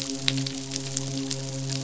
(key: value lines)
label: biophony, midshipman
recorder: SoundTrap 500